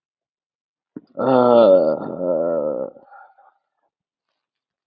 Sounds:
Sigh